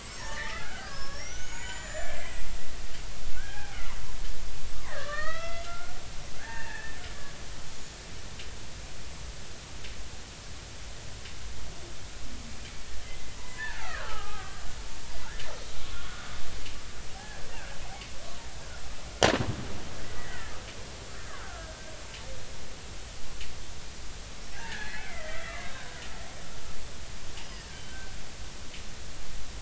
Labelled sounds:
0.1	2.4	killer whale, Bigg's (transient), 0.83 to 7.7 kHz
3.4	3.8	killer whale, Bigg's (transient), 0.80 to 1.7 kHz
4.8	7.0	killer whale, Bigg's (transient), 0.80 to 4.8 kHz
7.8	8.0	killer whale, Bigg's (transient), 6.5 to 6.9 kHz
13.4	14.6	killer whale, Bigg's (transient), 0.80 to 2.2 kHz
15.9	17.4	killer whale, Bigg's (transient), 0.80 to 1.5 kHz
20.1	20.5	killer whale, Bigg's (transient), 1.4 to 2.1 kHz
21.3	21.9	killer whale, Bigg's (transient), 1.2 to 1.9 kHz
24.5	26.0	killer whale, Bigg's (transient), 0.96 to 4.4 kHz
27.4	28.2	killer whale, Bigg's (transient), 1.5 to 3.0 kHz

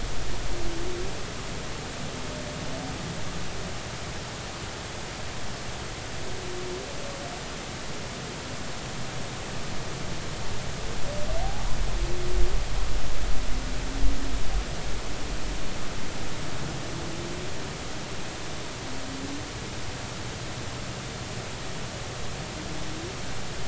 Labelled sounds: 11.4	11.8	humpback whale, 0.80 to 1.1 kHz

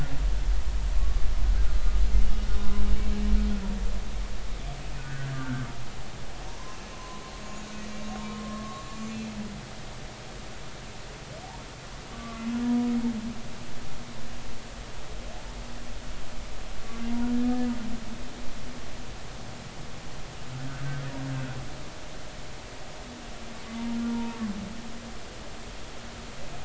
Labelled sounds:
0.6	1.0	humpback whale, 1.5 to 1.7 kHz
2.2	2.8	humpback whale, 0.99 to 2.9 kHz
5.0	5.7	humpback whale, 1.3 to 1.7 kHz
6.9	7.7	humpback whale, 0.96 to 6.8 kHz
8.5	8.9	humpback whale, 1.1 to 7.2 kHz
12.1	12.9	humpback whale, 0.93 to 2.6 kHz
24.1	24.4	humpback whale, 0.90 to 0.99 kHz

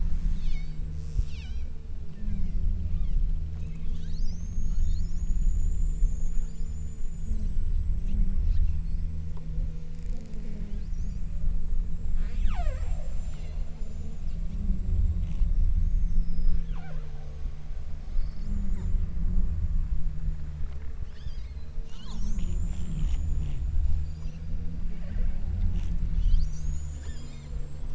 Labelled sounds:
0.1	7.7	killer whale, southern Alaska resident, 0.89 to 8.0 kHz
12.2	14.0	killer whale, southern Alaska resident, 0.45 to 8.0 kHz
16.8	17.6	killer whale, southern Alaska resident, 0.34 to 7.2 kHz
21.0	22.7	killer whale, southern Alaska resident, 0.57 to 8.0 kHz
24.9	25.7	killer whale, southern Alaska resident, 0.74 to 5.1 kHz
27.1	27.7	killer whale, southern Alaska resident, 1.4 to 6.4 kHz

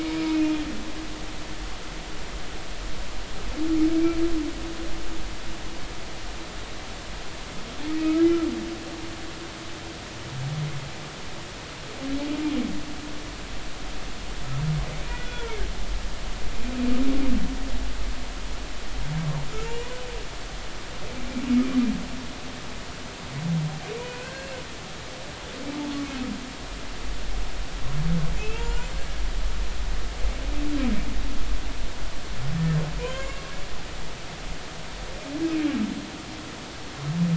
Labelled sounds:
0.3	0.5	humpback whale, 2.4 to 2.6 kHz
8.0	8.3	humpback whale, 1.2 to 1.4 kHz
15.1	15.6	humpback whale, 1.3 to 3.5 kHz
19.7	19.9	humpback whale, 2.3 to 2.6 kHz
24.1	24.5	humpback whale, 1.4 to 1.7 kHz
28.4	28.6	humpback whale, 2.5 to 2.8 kHz
33.1	33.4	humpback whale, 2.0 to 2.8 kHz

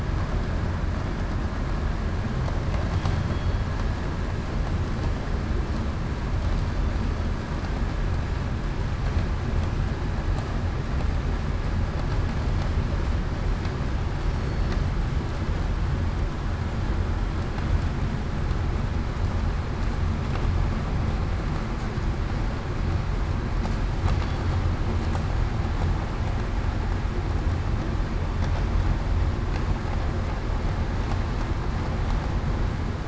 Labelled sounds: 3.3	3.6	killer whale, southern resident, 3.3 to 3.4 kHz
14.4	14.7	killer whale, southern resident, 4.36 to 4.43 kHz

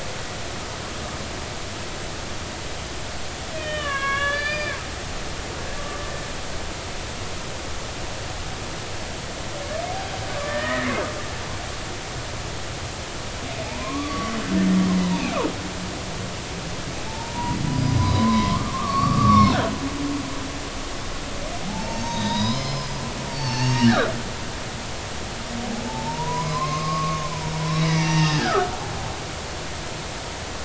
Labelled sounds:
3.5	4.8	humpback whale, 1.0 to 4.9 kHz
10.4	10.9	humpback whale, 1.7 to 2.0 kHz
13.6	14.3	humpback whale, 0.80 to 1.2 kHz
15.1	15.3	humpback whale, 0.80 to 0.99 kHz
17.0	17.6	humpback whale, 0.83 to 1.0 kHz
18.1	19.5	humpback whale, 0.96 to 4.5 kHz
21.7	23.0	humpback whale, 0.80 to 5.3 kHz
23.3	24.1	humpback whale, 0.83 to 4.7 kHz
25.8	28.8	humpback whale, 0.83 to 6.4 kHz

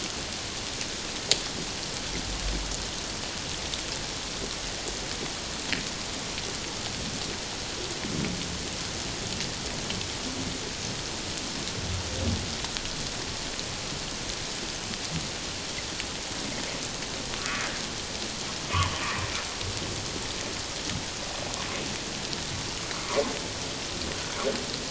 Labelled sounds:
18.7	19.0	humpback whale, 0.94 to 1.3 kHz
22.9	23.2	humpback whale, 0.94 to 1.4 kHz

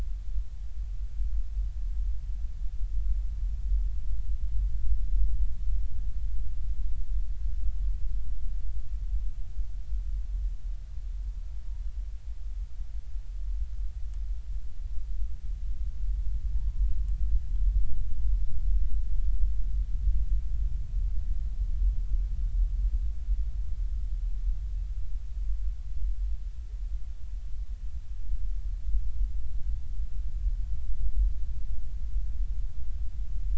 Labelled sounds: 16.5	16.9	humpback whale, 0.83 to 1.1 kHz

